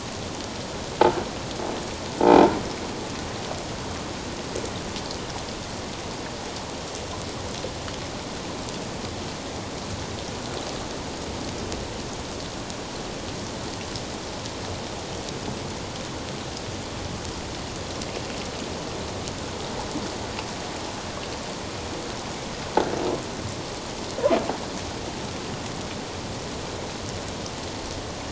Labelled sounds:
2.2	2.6	croaking sound likely from a nearby submerged object, 0.78 to 1.0 kHz

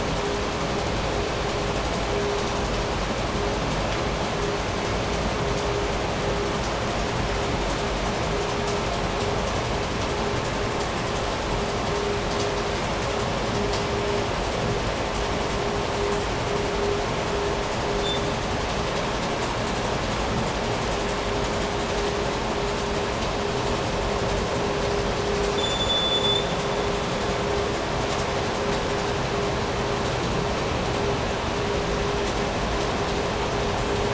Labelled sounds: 17.9	18.3	vessel noise, 3.1 to 7.4 kHz
25.4	26.7	vessel noise, 3.0 to 7.4 kHz

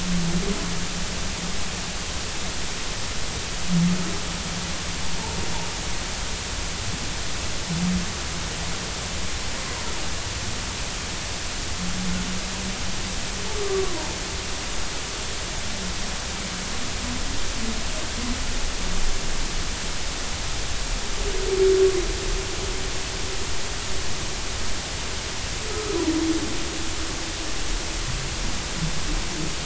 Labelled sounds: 13.8	14.2	humpback whale, 0.86 to 1.2 kHz
25.7	26.0	humpback whale, 1.1 to 1.3 kHz

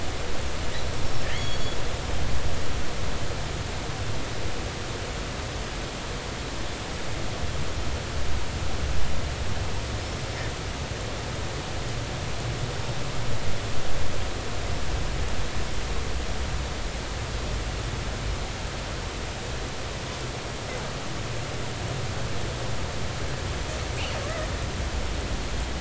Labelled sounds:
0.9	1.8	killer whale, northern resident, G clan, call N23i, 2.9 to 6.8 kHz
20.3	20.8	killer whale, northern resident, G clan, call N25, 7.8 to 8.0 kHz

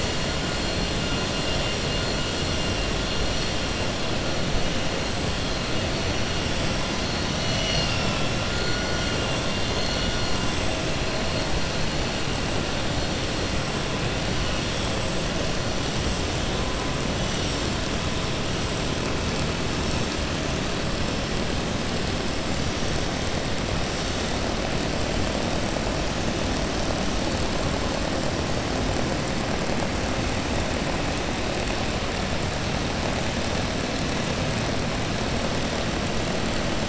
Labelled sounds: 7.3	8.3	vessel noise, 2.1 to 6.7 kHz

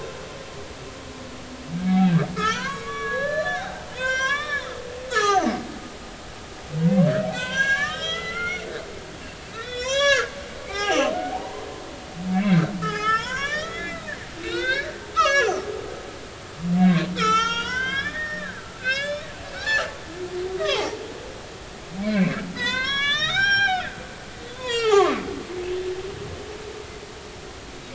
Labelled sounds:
1.8	4.7	humpback whale, 0.80 to 7.5 kHz
5.1	5.5	humpback whale, 1.1 to 6.6 kHz
7.3	8.7	humpback whale, 0.96 to 8.0 kHz
9.5	11.7	humpback whale, 0.80 to 6.8 kHz
12.3	14.0	humpback whale, 0.80 to 7.6 kHz
14.4	15.9	humpback whale, 0.96 to 6.0 kHz
17.2	19.3	humpback whale, 0.83 to 7.0 kHz
20.5	21.0	humpback whale, 0.80 to 2.7 kHz
22.0	25.2	humpback whale, 0.80 to 7.2 kHz

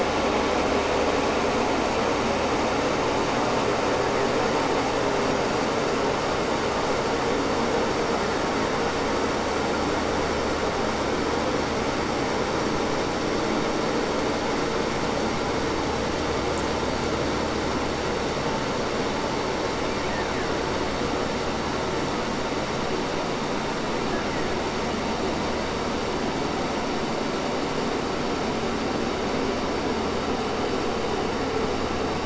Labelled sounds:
3.8	4.6	killer whale, Bigg's (transient), 1.2 to 3.1 kHz
19.9	20.6	killer whale, Bigg's (transient), 0.10 to 3.0 kHz
24.0	24.7	killer whale, Bigg's (transient), 0.94 to 2.8 kHz

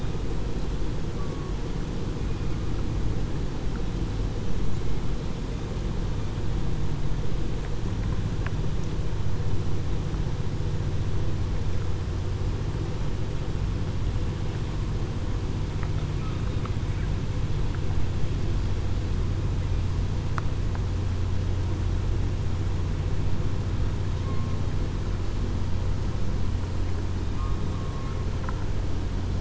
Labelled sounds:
1.1	1.5	killer whale, southern resident, 1.1 to 1.2 kHz

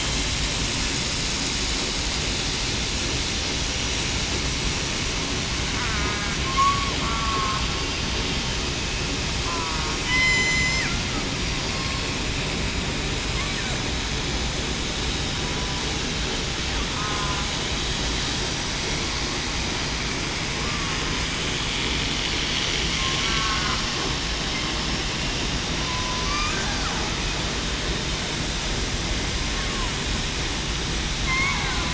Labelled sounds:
6.4	7.6	killer whale, southern resident, 1.0 to 1.4 kHz
9.4	10.8	killer whale, southern resident, 0.94 to 8.0 kHz
11.7	12.1	killer whale, southern resident, 4.2 to 4.4 kHz
17.0	17.4	killer whale, southern resident, 0.98 to 1.1 kHz
23.0	23.6	killer whale, southern resident, 1.0 to 1.4 kHz
25.8	26.3	killer whale, southern resident, 0.98 to 1.0 kHz
29.5	29.9	killer whale, southern resident, 0.91 to 1.2 kHz
31.2	31.7	killer whale, southern resident, 0.91 to 1.1 kHz

